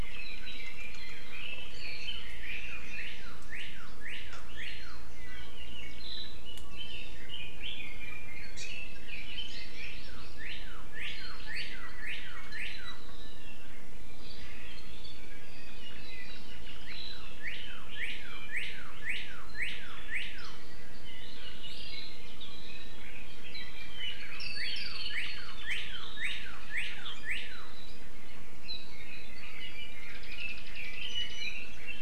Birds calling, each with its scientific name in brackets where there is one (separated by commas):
Red-billed Leiothrix (Leiothrix lutea), Northern Cardinal (Cardinalis cardinalis), Hawaii Amakihi (Chlorodrepanis virens)